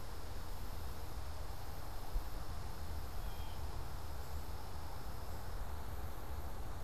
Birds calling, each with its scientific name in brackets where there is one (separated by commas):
Blue Jay (Cyanocitta cristata)